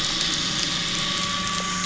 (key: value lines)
label: anthrophony, boat engine
recorder: SoundTrap 500